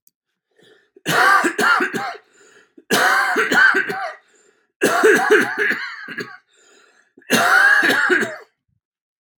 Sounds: Cough